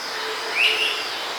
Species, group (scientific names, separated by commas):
Neotibicen pruinosus, Cicadidae